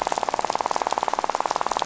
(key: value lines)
label: biophony, rattle
recorder: SoundTrap 500